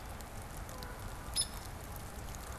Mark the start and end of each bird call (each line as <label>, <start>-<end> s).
Hairy Woodpecker (Dryobates villosus), 1.2-1.8 s